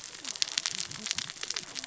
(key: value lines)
label: biophony, cascading saw
recorder: SoundTrap 600 or HydroMoth